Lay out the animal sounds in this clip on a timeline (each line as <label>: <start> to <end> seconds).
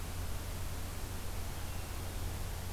Hermit Thrush (Catharus guttatus): 1.5 to 2.5 seconds